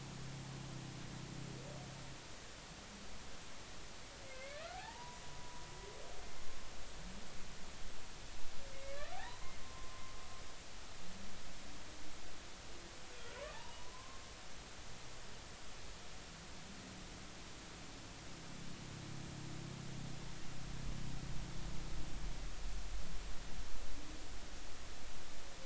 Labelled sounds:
4.3	5.6	humpback whale, 0.80 to 2.3 kHz
8.7	10.1	humpback whale, 0.80 to 2.3 kHz
13.5	14.2	humpback whale, 0.83 to 1.2 kHz

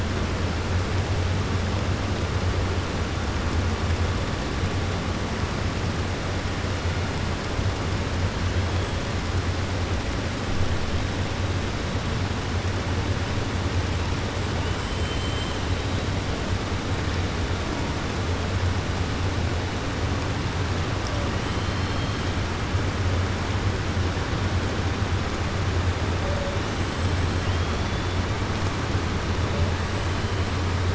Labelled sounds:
14.7	15.5	killer whale, 7.2 to 8.0 kHz

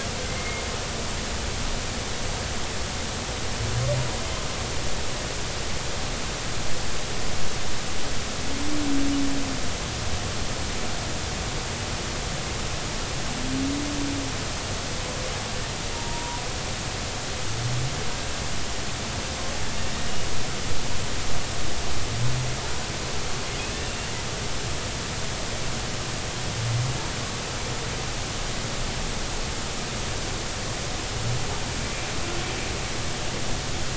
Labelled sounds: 0.3	0.6	humpback whale, 2.0 to 2.2 kHz
15.9	16.4	humpback whale, 0.90 to 1.0 kHz

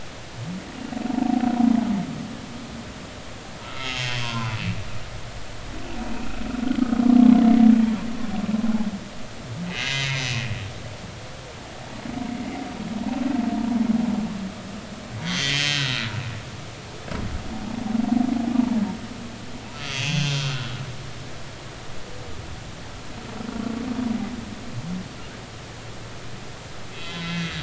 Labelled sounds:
1.2	1.4	humpback whale, 0.80 to 0.93 kHz
3.6	4.6	humpback whale, 0.86 to 3.3 kHz
9.6	10.3	humpback whale, 1.9 to 7.3 kHz
12.3	12.6	humpback whale, 2.0 to 2.2 kHz
15.2	16.7	humpback whale, 1.3 to 6.8 kHz
17.5	17.8	humpback whale, 0.80 to 0.93 kHz
19.8	20.7	humpback whale, 1.2 to 7.1 kHz
26.9	27.6	humpback whale, 1.4 to 4.0 kHz

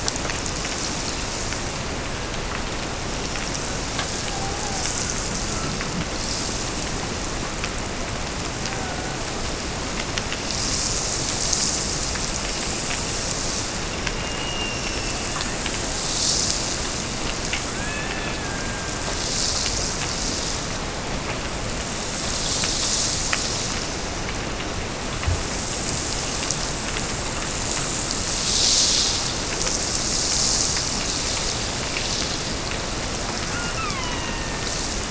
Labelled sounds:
4.1	5.0	killer whale, Bigg's (transient), Gulf of Alaska transient, 0.50 to 1.1 kHz
8.5	9.3	killer whale, Bigg's (transient), Gulf of Alaska transient, 0.52 to 1.8 kHz
14.0	16.1	killer whale, Bigg's (transient), Gulf of Alaska transient, 1.4 to 5.6 kHz
17.6	19.6	killer whale, Bigg's (transient), Gulf of Alaska transient, 1.1 to 3.7 kHz
33.4	34.9	killer whale, Bigg's (transient), Gulf of Alaska transient, 0.82 to 4.2 kHz

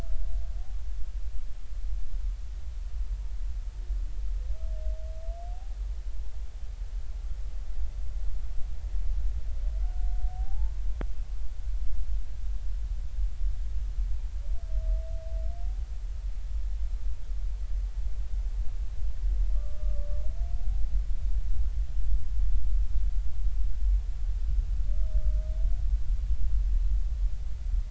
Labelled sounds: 10.3	10.8	humpback whale, 0.80 to 1.1 kHz
19.5	20.1	humpback whale, 1.1 to 1.2 kHz

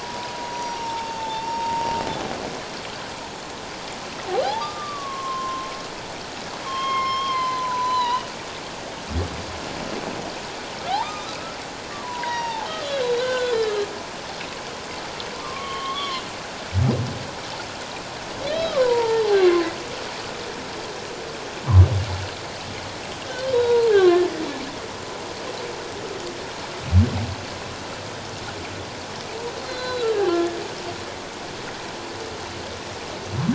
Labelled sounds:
0.0	1.8	humpback whale, 0.81 to 5.8 kHz
4.4	5.7	humpback whale, 0.78 to 1.3 kHz
6.6	8.3	humpback whale, 0.88 to 6.2 kHz
11.0	12.7	humpback whale, 0.81 to 5.8 kHz
13.0	13.9	humpback whale, 1.4 to 4.1 kHz
15.3	16.2	humpback whale, 1.0 to 3.5 kHz
18.5	19.6	humpback whale, 0.78 to 3.3 kHz
23.5	24.2	humpback whale, 0.88 to 3.9 kHz
29.6	30.6	humpback whale, 1.3 to 4.2 kHz

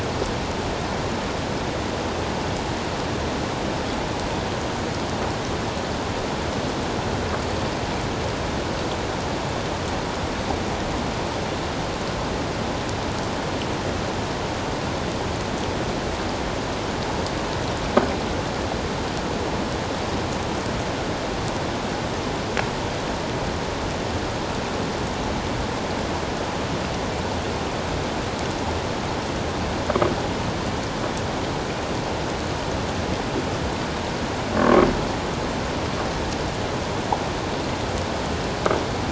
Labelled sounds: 34.6	34.9	croaking sound likely from a nearby submerged object, 1.0 to 1.3 kHz

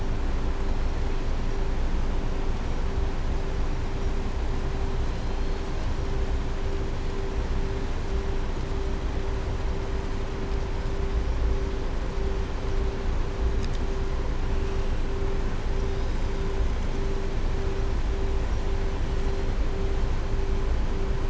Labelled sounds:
5.0	5.6	killer whale, southern resident, 3.2 to 4.9 kHz

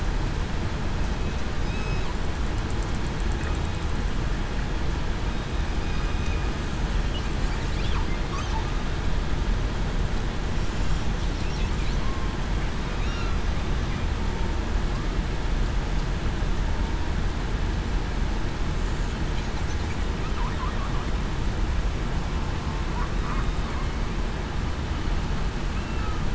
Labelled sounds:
6.0	6.5	killer whale, southern resident, 2.4 to 2.6 kHz
25.8	26.1	killer whale, southern resident, 2.6 to 2.8 kHz

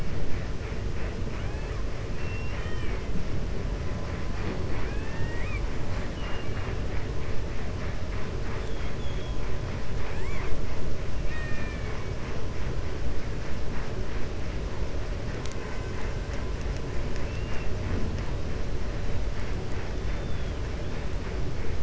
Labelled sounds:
2.1	3.0	killer whale, 1.2 to 3.2 kHz
6.0	6.7	killer whale, 0.79 to 3.0 kHz
9.9	10.5	killer whale, 0.75 to 3.4 kHz
11.2	12.0	killer whale, 1.2 to 4.3 kHz
17.2	17.7	killer whale, 1.5 to 3.7 kHz

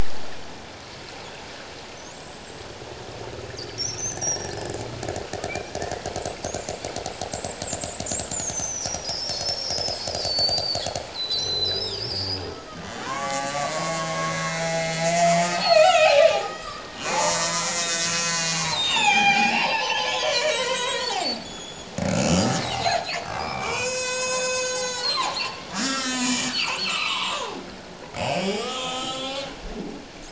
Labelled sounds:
0.4	0.7	killer whale, Bigg's (transient), 4.1 to 6.0 kHz
2.1	2.7	killer whale, Bigg's (transient), 7.4 to 7.9 kHz
3.8	4.8	killer whale, Bigg's (transient), 1.5 to 6.4 kHz
5.5	6.4	killer whale, Bigg's (transient), 2.2 to 8.0 kHz
7.3	12.4	killer whale, Bigg's (transient), 2.9 to 8.0 kHz
12.7	27.5	killer whale, Bigg's (transient), 0.78 to 8.0 kHz
28.2	29.6	killer whale, Bigg's (transient), 1.0 to 7.0 kHz

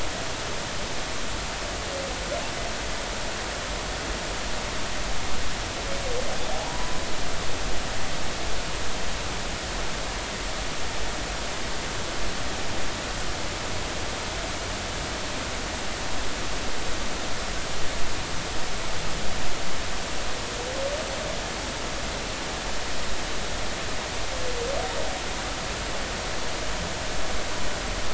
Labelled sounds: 6.5	6.9	humpback whale, 0.80 to 1.0 kHz

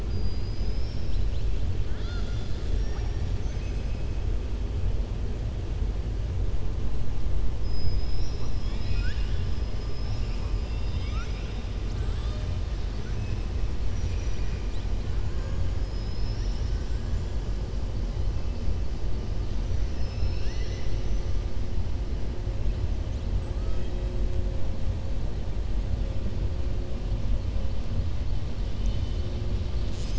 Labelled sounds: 0.0	1.5	killer whale, southern resident, 3.0 to 5.8 kHz
1.8	3.9	killer whale, southern resident, 0.85 to 7.6 kHz
7.6	9.5	killer whale, southern resident, 1.4 to 7.4 kHz
10.5	11.6	killer whale, southern resident, 1.2 to 6.4 kHz
16.8	17.3	killer whale, southern resident, 6.1 to 7.6 kHz
23.3	24.1	killer whale, southern resident, 1.1 to 8.0 kHz
28.7	29.3	killer whale, southern resident, 2.4 to 4.5 kHz

